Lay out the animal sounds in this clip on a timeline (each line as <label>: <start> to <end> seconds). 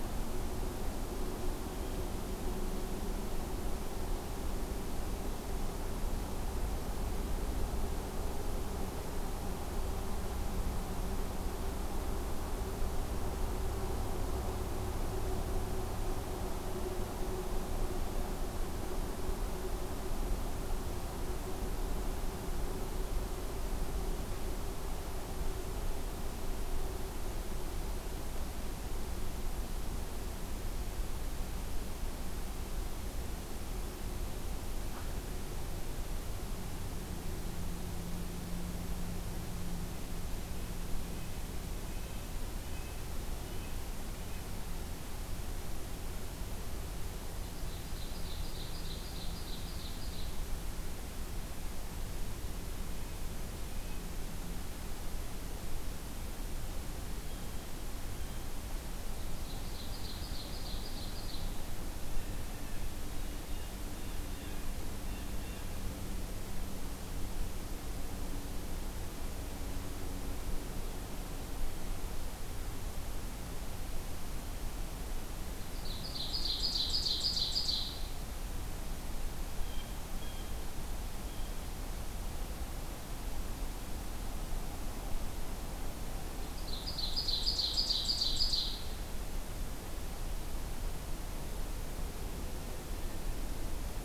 Red-breasted Nuthatch (Sitta canadensis): 41.0 to 44.5 seconds
Ovenbird (Seiurus aurocapilla): 47.3 to 50.6 seconds
Red-breasted Nuthatch (Sitta canadensis): 52.6 to 54.2 seconds
Blue Jay (Cyanocitta cristata): 57.1 to 58.7 seconds
Ovenbird (Seiurus aurocapilla): 58.9 to 61.8 seconds
Blue Jay (Cyanocitta cristata): 62.0 to 65.9 seconds
Ovenbird (Seiurus aurocapilla): 75.4 to 78.3 seconds
Blue Jay (Cyanocitta cristata): 79.3 to 81.9 seconds
Ovenbird (Seiurus aurocapilla): 86.3 to 89.0 seconds